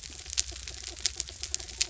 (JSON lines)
{"label": "anthrophony, mechanical", "recorder": "SoundTrap 300"}